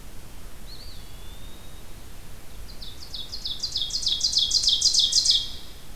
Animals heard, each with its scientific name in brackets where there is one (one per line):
Eastern Wood-Pewee (Contopus virens)
Ovenbird (Seiurus aurocapilla)